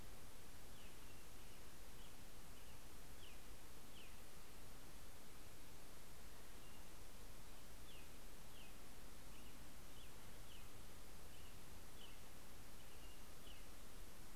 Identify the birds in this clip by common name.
Pacific-slope Flycatcher